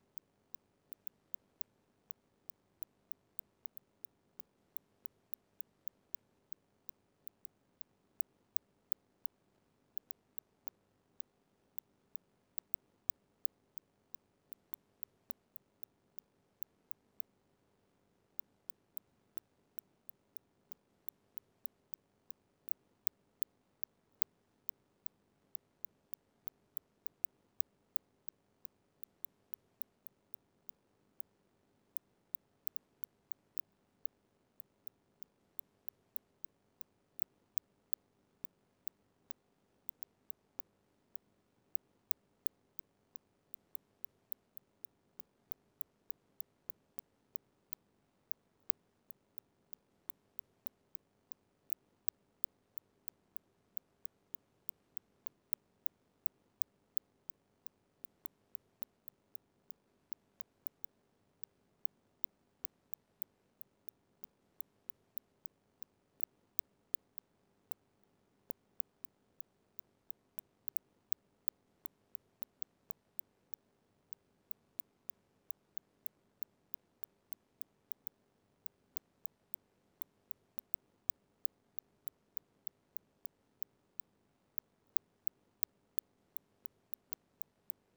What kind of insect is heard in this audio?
orthopteran